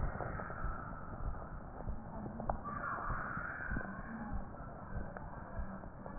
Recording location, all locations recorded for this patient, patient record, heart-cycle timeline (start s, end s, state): mitral valve (MV)
aortic valve (AV)+aortic valve (AV)+pulmonary valve (PV)+tricuspid valve (TV)+mitral valve (MV)+mitral valve (MV)
#Age: nan
#Sex: Female
#Height: nan
#Weight: nan
#Pregnancy status: True
#Murmur: Absent
#Murmur locations: nan
#Most audible location: nan
#Systolic murmur timing: nan
#Systolic murmur shape: nan
#Systolic murmur grading: nan
#Systolic murmur pitch: nan
#Systolic murmur quality: nan
#Diastolic murmur timing: nan
#Diastolic murmur shape: nan
#Diastolic murmur grading: nan
#Diastolic murmur pitch: nan
#Diastolic murmur quality: nan
#Outcome: Abnormal
#Campaign: 2014 screening campaign
0.00	0.12	S1
0.12	0.28	systole
0.28	0.38	S2
0.38	0.64	diastole
0.64	0.74	S1
0.74	0.88	systole
0.88	0.98	S2
0.98	1.22	diastole
1.22	1.34	S1
1.34	1.52	systole
1.52	1.62	S2
1.62	1.86	diastole
1.86	1.98	S1
1.98	2.16	systole
2.16	2.26	S2
2.26	2.46	diastole
2.46	2.58	S1
2.58	2.72	systole
2.72	2.82	S2
2.82	3.08	diastole
3.08	3.18	S1
3.18	3.36	systole
3.36	3.46	S2
3.46	3.70	diastole
3.70	3.82	S1
3.82	3.96	systole
3.96	4.04	S2
4.04	4.32	diastole
4.32	4.44	S1
4.44	4.62	systole
4.62	4.70	S2
4.70	4.94	diastole
4.94	5.04	S1
5.04	5.22	systole
5.22	5.32	S2
5.32	5.56	diastole
5.56	5.68	S1
5.68	5.86	systole
5.86	5.94	S2
5.94	6.19	diastole